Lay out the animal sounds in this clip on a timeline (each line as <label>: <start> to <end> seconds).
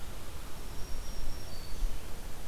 Black-throated Green Warbler (Setophaga virens): 0.5 to 2.2 seconds